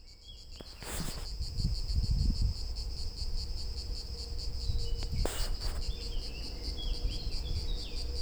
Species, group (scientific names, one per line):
Cicada orni
Cicadidae